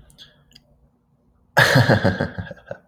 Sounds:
Laughter